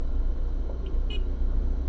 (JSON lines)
{"label": "anthrophony, boat engine", "recorder": "SoundTrap 300"}